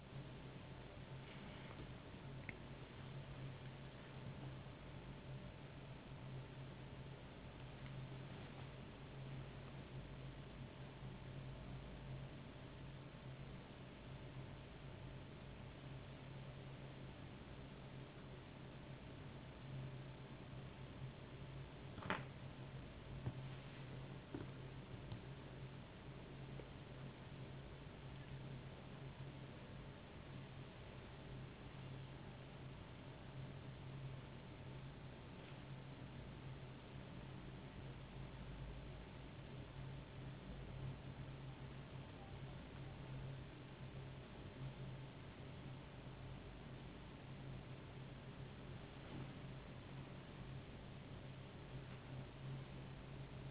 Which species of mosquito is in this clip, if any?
no mosquito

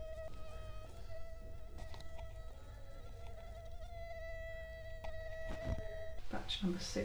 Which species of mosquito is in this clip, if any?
Culex quinquefasciatus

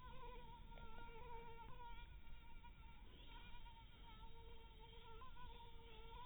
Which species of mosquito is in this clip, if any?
mosquito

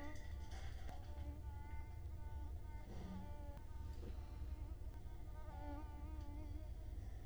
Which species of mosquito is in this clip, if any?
Culex quinquefasciatus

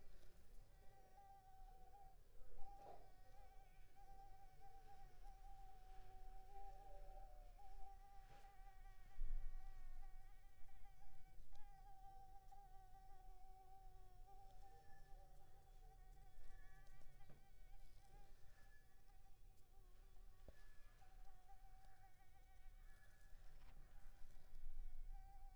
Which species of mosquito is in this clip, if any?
Anopheles arabiensis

